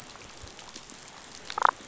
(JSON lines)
{"label": "biophony, damselfish", "recorder": "SoundTrap 500"}